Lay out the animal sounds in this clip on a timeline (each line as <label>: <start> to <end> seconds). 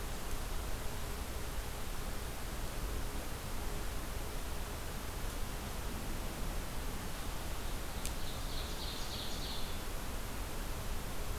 Ovenbird (Seiurus aurocapilla): 7.7 to 9.9 seconds